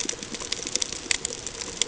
{"label": "ambient", "recorder": "HydroMoth"}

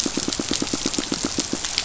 {"label": "biophony, pulse", "recorder": "SoundTrap 500"}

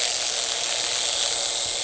{"label": "anthrophony, boat engine", "recorder": "HydroMoth"}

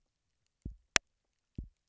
{"label": "biophony, double pulse", "recorder": "SoundTrap 300"}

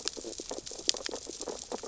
{"label": "biophony, sea urchins (Echinidae)", "recorder": "SoundTrap 600 or HydroMoth"}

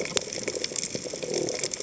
{"label": "biophony", "recorder": "HydroMoth"}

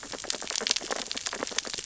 {"label": "biophony, sea urchins (Echinidae)", "recorder": "SoundTrap 600 or HydroMoth"}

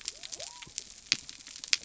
{"label": "biophony", "recorder": "SoundTrap 300"}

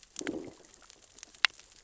{"label": "biophony, growl", "recorder": "SoundTrap 600 or HydroMoth"}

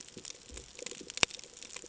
{"label": "ambient", "recorder": "HydroMoth"}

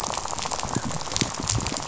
{"label": "biophony, rattle", "recorder": "SoundTrap 500"}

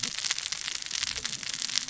{"label": "biophony, cascading saw", "recorder": "SoundTrap 600 or HydroMoth"}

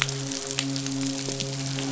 {"label": "biophony, midshipman", "recorder": "SoundTrap 500"}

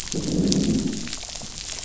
{"label": "biophony, growl", "recorder": "SoundTrap 500"}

